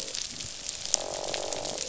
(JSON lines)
{"label": "biophony, croak", "recorder": "SoundTrap 500"}